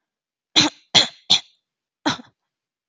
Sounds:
Throat clearing